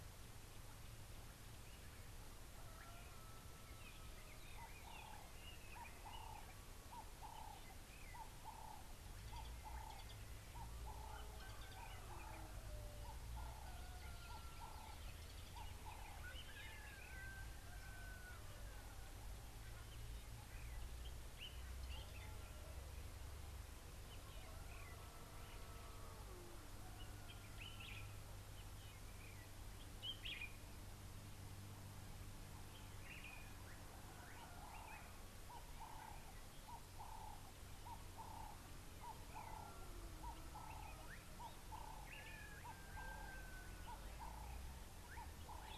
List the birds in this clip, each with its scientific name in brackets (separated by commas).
Common Bulbul (Pycnonotus barbatus), Ring-necked Dove (Streptopelia capicola)